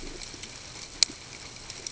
{"label": "ambient", "recorder": "HydroMoth"}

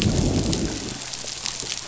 {"label": "biophony, growl", "recorder": "SoundTrap 500"}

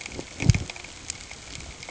{"label": "ambient", "recorder": "HydroMoth"}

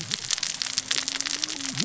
{"label": "biophony, cascading saw", "recorder": "SoundTrap 600 or HydroMoth"}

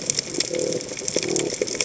{"label": "biophony", "recorder": "HydroMoth"}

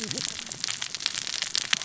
{"label": "biophony, cascading saw", "recorder": "SoundTrap 600 or HydroMoth"}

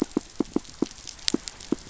{"label": "biophony, pulse", "recorder": "SoundTrap 500"}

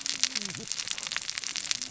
{"label": "biophony, cascading saw", "recorder": "SoundTrap 600 or HydroMoth"}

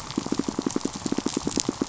{"label": "biophony, pulse", "recorder": "SoundTrap 500"}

